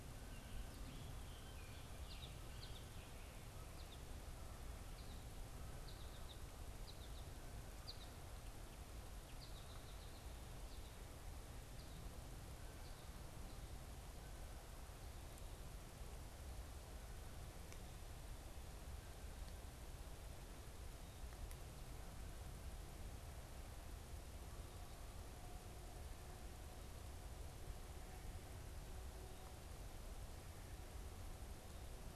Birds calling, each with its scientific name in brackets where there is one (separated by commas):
American Goldfinch (Spinus tristis), Scarlet Tanager (Piranga olivacea)